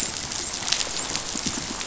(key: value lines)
label: biophony, dolphin
recorder: SoundTrap 500